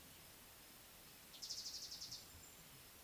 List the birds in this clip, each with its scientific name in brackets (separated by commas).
Mariqua Sunbird (Cinnyris mariquensis)